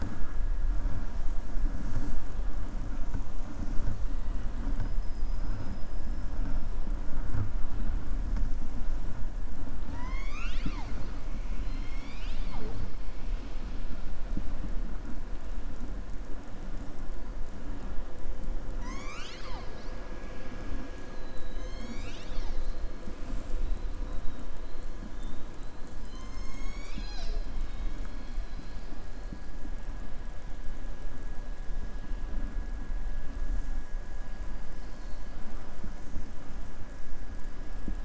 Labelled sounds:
4.6	6.3	killer whale, southern resident, 4.8 to 5.5 kHz
9.8	11.1	killer whale, southern resident, 0.77 to 7.3 kHz
27.5	28.1	killer whale, southern resident, 0.93 to 4.5 kHz
34.6	35.3	killer whale, southern resident, 3.7 to 5.4 kHz

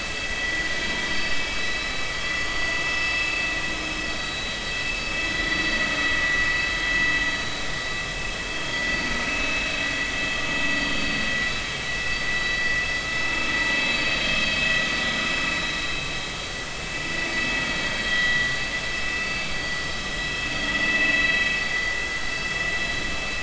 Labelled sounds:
2.9	3.3	vessel noise, 2.6 to 5.3 kHz
4.1	4.6	vessel noise, 3.8 to 3.9 kHz
14.2	14.5	vessel noise, 3.1 to 3.2 kHz
18.0	18.5	vessel noise, 1.9 to 3.3 kHz
20.8	21.4	vessel noise, 2.5 to 4.0 kHz

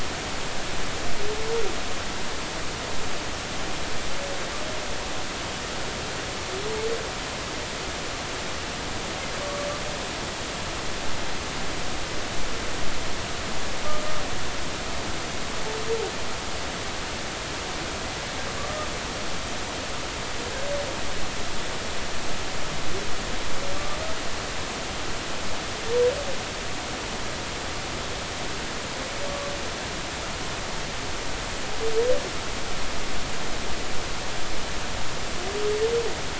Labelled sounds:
9.4	9.7	humpback whale, 1.1 to 1.2 kHz

